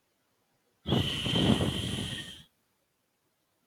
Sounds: Sigh